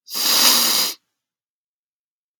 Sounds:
Sniff